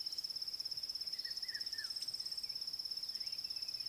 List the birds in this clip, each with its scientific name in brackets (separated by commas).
Red-chested Cuckoo (Cuculus solitarius)